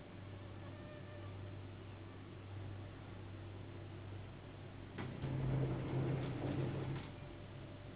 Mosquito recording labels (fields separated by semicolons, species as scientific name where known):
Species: Anopheles gambiae s.s.; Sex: female; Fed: unfed; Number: one; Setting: insect culture